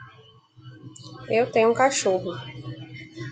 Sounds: Sneeze